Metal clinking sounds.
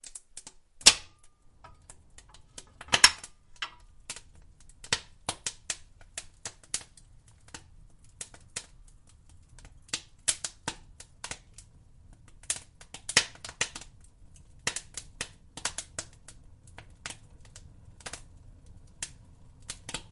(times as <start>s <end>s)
0.0s 4.4s